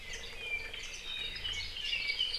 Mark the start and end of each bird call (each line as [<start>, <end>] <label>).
[0.00, 0.30] Warbling White-eye (Zosterops japonicus)
[0.00, 2.38] Apapane (Himatione sanguinea)
[0.70, 1.10] Warbling White-eye (Zosterops japonicus)
[1.40, 1.70] Warbling White-eye (Zosterops japonicus)